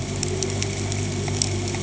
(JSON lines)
{"label": "anthrophony, boat engine", "recorder": "HydroMoth"}